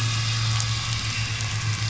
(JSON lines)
{"label": "anthrophony, boat engine", "recorder": "SoundTrap 500"}